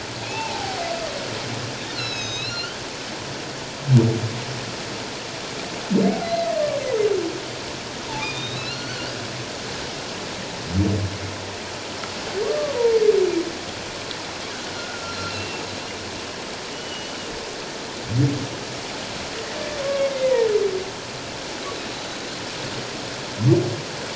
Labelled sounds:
0.2	0.8	humpback whale, 0.78 to 2.8 kHz
1.9	2.8	humpback whale, 2.5 to 6.6 kHz
6.2	6.5	humpback whale, 1.9 to 4.2 kHz
8.2	9.1	humpback whale, 1.3 to 4.6 kHz
12.4	12.7	humpback whale, 1.1 to 1.2 kHz
14.8	15.6	humpback whale, 1.3 to 4.2 kHz
16.7	17.2	humpback whale, 2.8 to 3.0 kHz
19.8	20.5	humpback whale, 1.0 to 2.2 kHz
21.9	22.2	humpback whale, 3.8 to 4.1 kHz

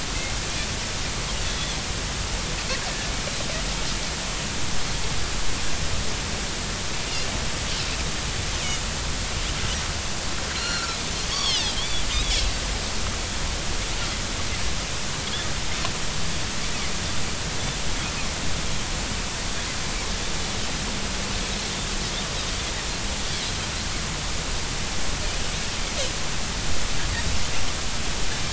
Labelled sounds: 1.5	1.8	Pacific white-sided dolphin, 3.3 to 3.6 kHz
10.5	12.0	Pacific white-sided dolphin, 1.3 to 5.8 kHz

